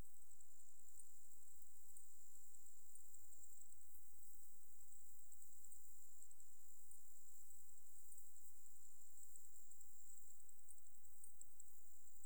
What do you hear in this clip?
Pteronemobius heydenii, an orthopteran